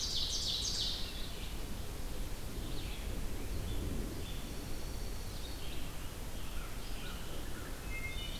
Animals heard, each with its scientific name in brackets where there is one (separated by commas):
Dark-eyed Junco (Junco hyemalis), Ovenbird (Seiurus aurocapilla), Red-eyed Vireo (Vireo olivaceus), American Crow (Corvus brachyrhynchos), Wood Thrush (Hylocichla mustelina)